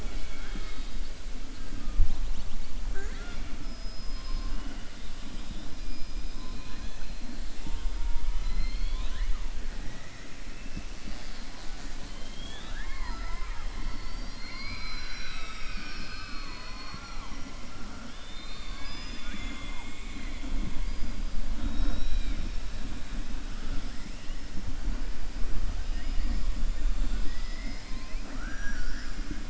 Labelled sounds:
2.8	3.5	killer whale, southern resident, 0.39 to 5.6 kHz
5.2	7.1	killer whale, southern resident, 1.0 to 5.3 kHz

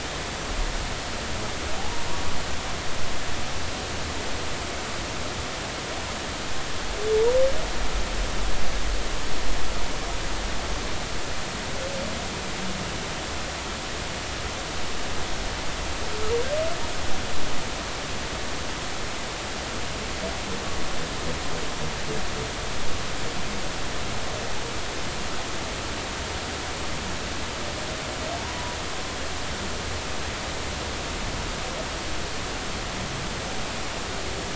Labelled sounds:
28.4	28.8	humpback whale, 0.93 to 1.1 kHz

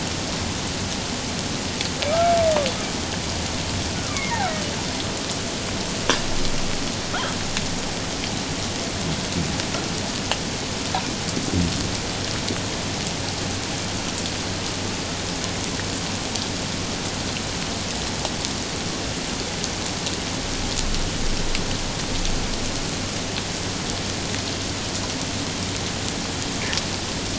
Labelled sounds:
2.1	2.4	humpback whale, 1.2 to 1.4 kHz
4.4	4.6	humpback whale, 1.2 to 1.7 kHz

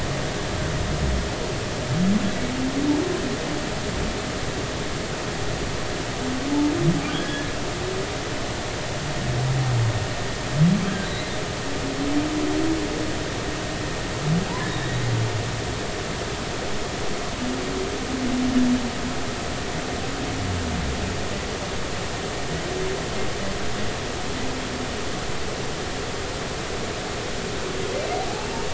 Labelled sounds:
7.2	7.5	humpback whale, 1.6 to 1.8 kHz
14.6	14.9	humpback whale, 3.6 to 3.8 kHz
28.3	28.7	humpback whale, 0.80 to 0.96 kHz

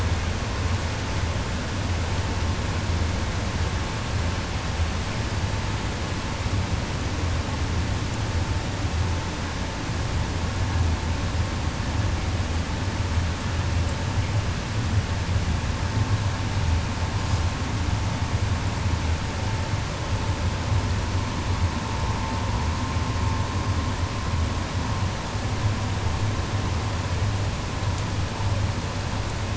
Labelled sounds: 17.2	17.4	killer whale, 2.7 to 8.0 kHz

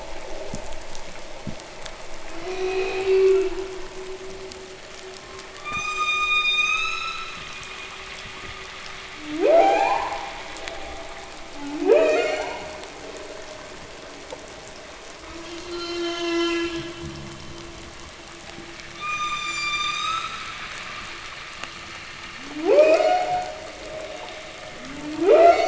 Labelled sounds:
0.3	0.7	fish, knock, 0.04 to 0.36 kHz
1.2	1.7	fish, knock, 0.03 to 0.41 kHz
2.2	3.7	humpback whale, moan, 0.20 to 6.2 kHz
5.4	7.5	humpback whale, ascending moan, 1.1 to 8.0 kHz
5.5	6.0	fish, knock, 0.03 to 0.38 kHz
7.3	7.7	fish, groan, 0.02 to 0.32 kHz
9.0	10.3	humpback whale, upsweep, 0.20 to 8.0 kHz
11.5	12.7	humpback whale, upsweep, 0.17 to 7.6 kHz
15.1	17.1	humpback whale, moan, 0.15 to 8.0 kHz
16.9	17.7	fish, groan, 0.01 to 0.28 kHz
18.8	20.5	humpback whale, ascending moan, 1.0 to 8.0 kHz
22.2	23.7	humpback whale, upsweep, 0.15 to 8.0 kHz
24.6	25.6	humpback whale, upsweep, 0.15 to 7.7 kHz

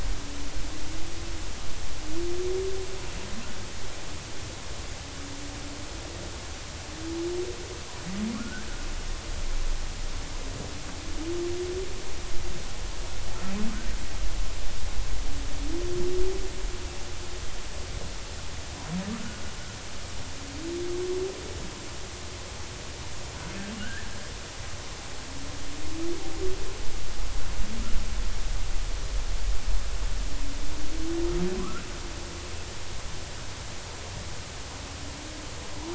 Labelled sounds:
8.3	8.7	humpback whale, 1.1 to 1.7 kHz
23.8	24.0	humpback whale, 1.4 to 1.9 kHz
31.6	31.8	humpback whale, 0.96 to 1.5 kHz

